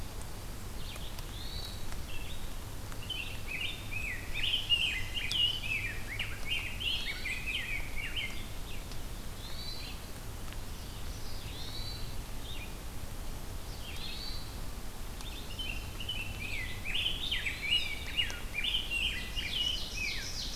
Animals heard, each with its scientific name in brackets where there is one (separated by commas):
Red-eyed Vireo (Vireo olivaceus), Rose-breasted Grosbeak (Pheucticus ludovicianus), Ovenbird (Seiurus aurocapilla), Common Yellowthroat (Geothlypis trichas), Hermit Thrush (Catharus guttatus)